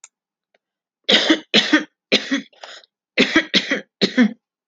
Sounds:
Cough